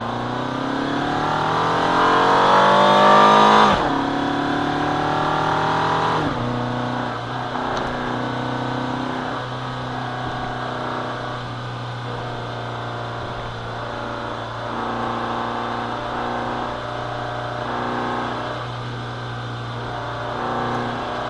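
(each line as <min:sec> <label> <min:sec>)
0:00.0 A car engine starts with a low rumble that grows as the gears are shifted. 0:03.8
0:03.9 A car engine starts with a rumble that grows as the gears shift. 0:06.9
0:07.0 A car engine creates a constant rumble. 0:21.3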